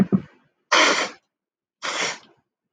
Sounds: Sniff